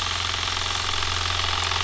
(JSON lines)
{"label": "anthrophony, boat engine", "recorder": "SoundTrap 300"}